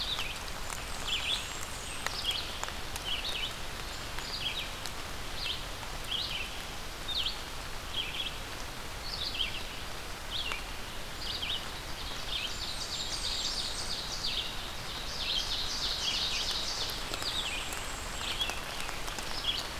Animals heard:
Black-and-white Warbler (Mniotilta varia), Scarlet Tanager (Piranga olivacea), Blackburnian Warbler (Setophaga fusca), Ovenbird (Seiurus aurocapilla), Red-eyed Vireo (Vireo olivaceus)

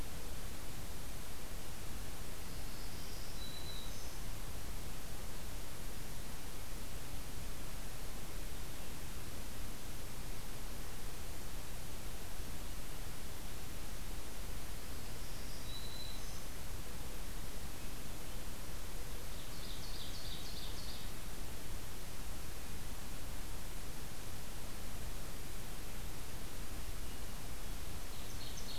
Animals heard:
Ovenbird (Seiurus aurocapilla), Black-throated Green Warbler (Setophaga virens)

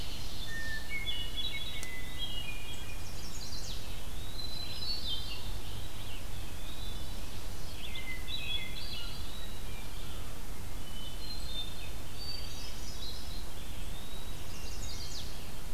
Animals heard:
Eastern Wood-Pewee (Contopus virens), Ovenbird (Seiurus aurocapilla), Chestnut-sided Warbler (Setophaga pensylvanica), Hermit Thrush (Catharus guttatus), Red-eyed Vireo (Vireo olivaceus)

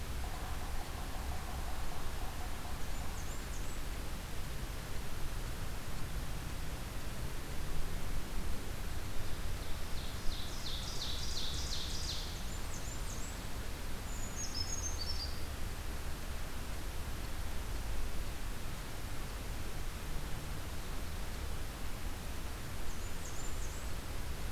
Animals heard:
Blackburnian Warbler (Setophaga fusca), Yellow-bellied Sapsucker (Sphyrapicus varius), Ovenbird (Seiurus aurocapilla), Brown Creeper (Certhia americana)

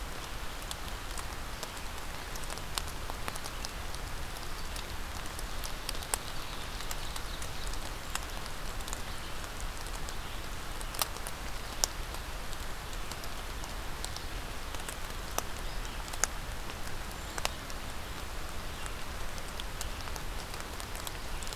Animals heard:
Ovenbird (Seiurus aurocapilla), Brown Creeper (Certhia americana)

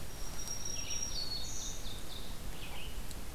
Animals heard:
Red-eyed Vireo (Vireo olivaceus), Black-throated Green Warbler (Setophaga virens), Ovenbird (Seiurus aurocapilla)

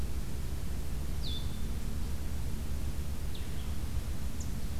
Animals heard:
Blue-headed Vireo (Vireo solitarius)

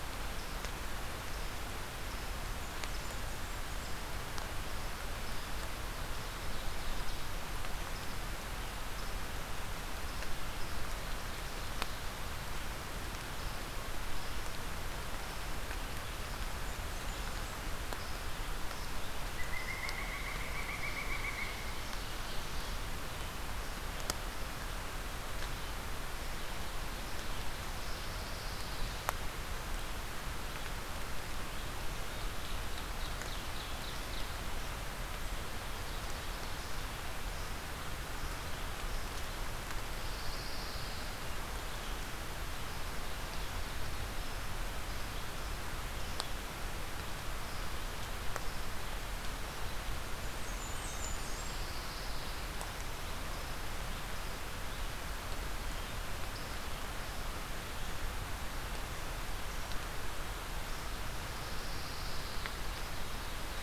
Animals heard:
Blackburnian Warbler (Setophaga fusca), Pileated Woodpecker (Dryocopus pileatus), Pine Warbler (Setophaga pinus), Ovenbird (Seiurus aurocapilla)

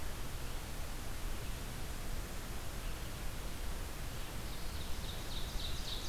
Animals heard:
Ovenbird (Seiurus aurocapilla), Red-eyed Vireo (Vireo olivaceus)

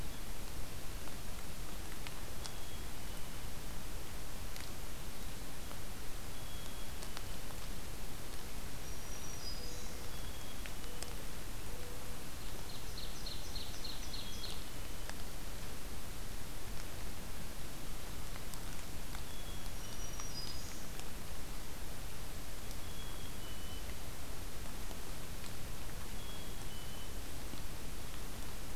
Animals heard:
Ovenbird (Seiurus aurocapilla), Mourning Dove (Zenaida macroura), Black-throated Green Warbler (Setophaga virens), Black-capped Chickadee (Poecile atricapillus)

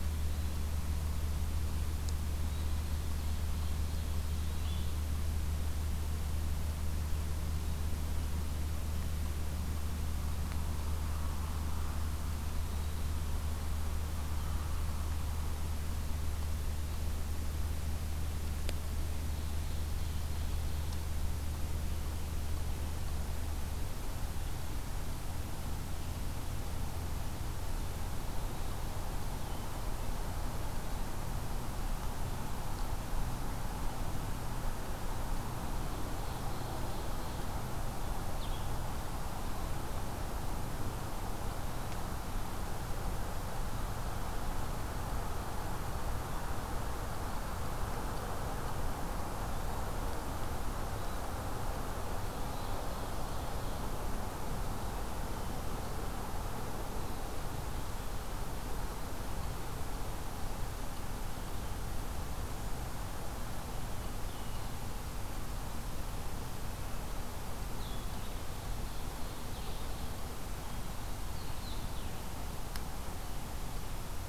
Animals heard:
Ovenbird (Seiurus aurocapilla), Blue-headed Vireo (Vireo solitarius)

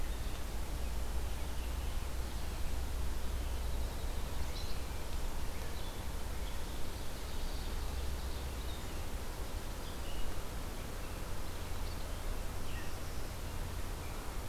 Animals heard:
Ovenbird (Seiurus aurocapilla), Winter Wren (Troglodytes hiemalis), Red-eyed Vireo (Vireo olivaceus)

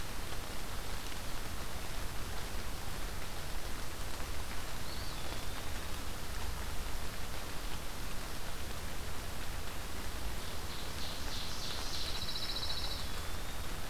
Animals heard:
Pine Warbler (Setophaga pinus), Ovenbird (Seiurus aurocapilla), Eastern Wood-Pewee (Contopus virens)

